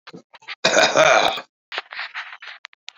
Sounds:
Cough